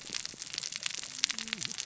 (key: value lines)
label: biophony, cascading saw
recorder: SoundTrap 600 or HydroMoth